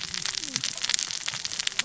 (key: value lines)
label: biophony, cascading saw
recorder: SoundTrap 600 or HydroMoth